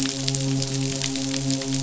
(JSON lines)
{"label": "biophony, midshipman", "recorder": "SoundTrap 500"}